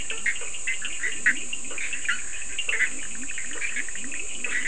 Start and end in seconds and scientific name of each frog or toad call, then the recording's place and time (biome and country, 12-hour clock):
0.0	0.6	Boana faber
0.0	4.6	Boana bischoffi
0.0	4.6	Leptodactylus latrans
0.0	4.6	Sphaenorhynchus surdus
1.7	4.6	Boana faber
Atlantic Forest, Brazil, 3:00am